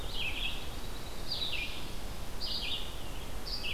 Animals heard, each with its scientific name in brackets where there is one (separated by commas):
Dark-eyed Junco (Junco hyemalis), Red-eyed Vireo (Vireo olivaceus)